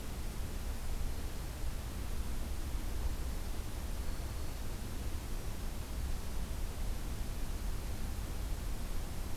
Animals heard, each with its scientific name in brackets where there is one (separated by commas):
Golden-crowned Kinglet (Regulus satrapa)